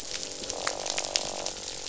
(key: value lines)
label: biophony, croak
recorder: SoundTrap 500